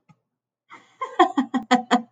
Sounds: Laughter